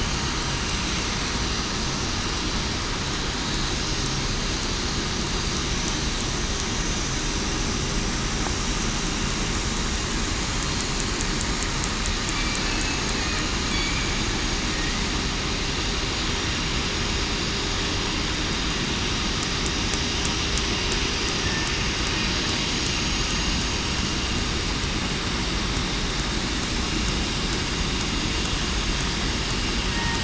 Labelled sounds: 10.5	11.1	killer whale, southern resident, 4.2 to 4.3 kHz
12.6	13.0	killer whale, southern resident, 2.55 to 2.65 kHz
29.9	30.2	killer whale, southern resident, 0.87 to 0.96 kHz

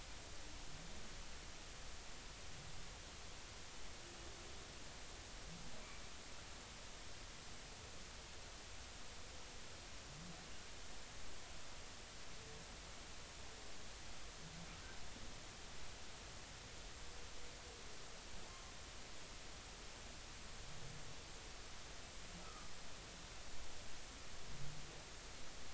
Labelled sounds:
18.5	18.7	humpback whale, 1.0 to 1.1 kHz
22.4	22.7	humpback whale, 1.2 to 1.4 kHz

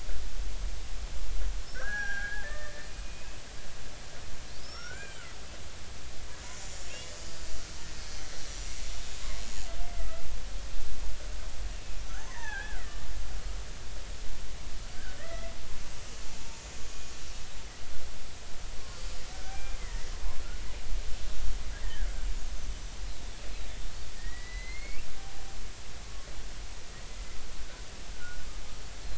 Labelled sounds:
1.7	3.4	killer whale, Bigg's (transient), 0.80 to 3.4 kHz
4.6	5.2	killer whale, Bigg's (transient), 1.1 to 5.7 kHz
6.5	6.9	killer whale, Bigg's (transient), 6.8 to 7.2 kHz
7.1	8.2	killer whale, Bigg's (transient), 4.3 to 5.0 kHz
8.5	8.8	killer whale, Bigg's (transient), 5.7 to 6.0 kHz
9.8	10.3	killer whale, Bigg's (transient), 1.2 to 2.1 kHz
12.1	13.1	killer whale, Bigg's (transient), 0.80 to 6.4 kHz
14.9	15.5	killer whale, Bigg's (transient), 1.2 to 2.2 kHz
16.2	16.9	killer whale, Bigg's (transient), 0.86 to 7.0 kHz
19.3	20.1	killer whale, Bigg's (transient), 1.5 to 2.5 kHz
21.8	22.1	killer whale, Bigg's (transient), 1.5 to 2.0 kHz
24.2	25.0	killer whale, Bigg's (transient), 1.8 to 4.5 kHz
28.1	28.5	killer whale, Bigg's (transient), 1.4 to 1.6 kHz

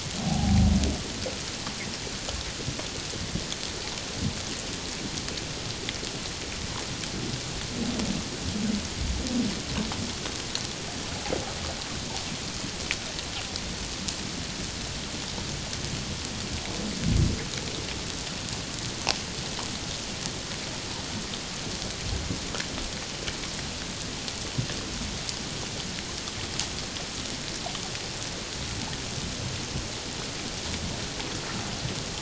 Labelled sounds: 0.3	0.7	humpback whale, 0.78 to 0.88 kHz

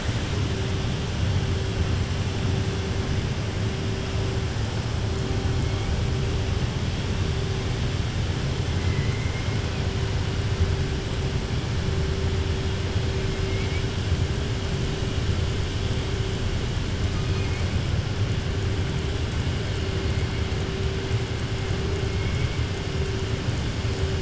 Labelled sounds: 8.8	9.5	killer whale, southern resident, 1.0 to 2.2 kHz
17.1	17.7	killer whale, southern resident, 1.3 to 2.6 kHz

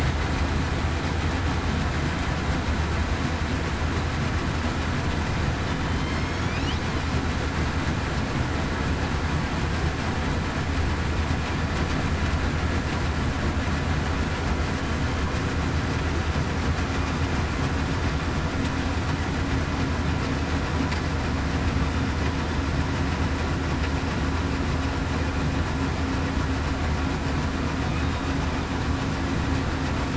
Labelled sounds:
5.9	6.2	killer whale, southern resident, 3.0 to 3.2 kHz

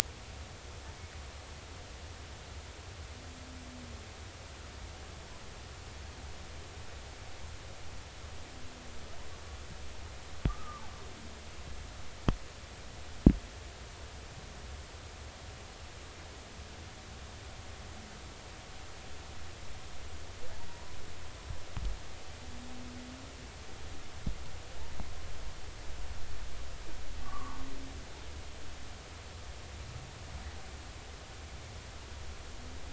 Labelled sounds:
10.5	10.8	humpback whale, 1.0 to 1.3 kHz
20.7	21.0	humpback whale, 0.90 to 1.1 kHz
27.2	27.6	humpback whale, 0.99 to 1.2 kHz

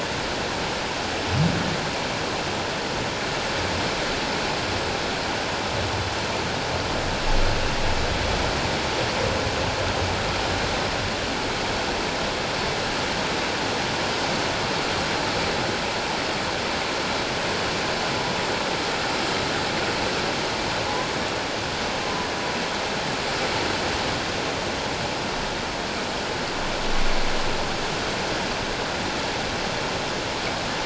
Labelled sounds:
22.0	22.3	humpback whale, 0.94 to 1.1 kHz

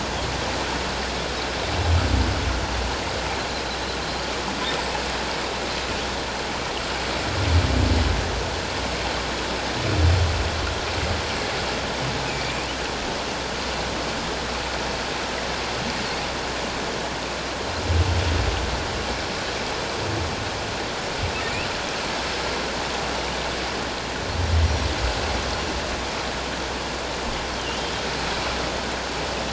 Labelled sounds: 12.3	12.7	humpback whale, 2.3 to 2.6 kHz
27.6	27.8	humpback whale, 2.7 to 3.2 kHz

